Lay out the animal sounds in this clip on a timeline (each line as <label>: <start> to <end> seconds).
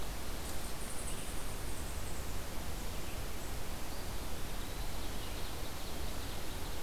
Eastern Wood-Pewee (Contopus virens): 3.8 to 5.1 seconds
Ovenbird (Seiurus aurocapilla): 4.5 to 6.8 seconds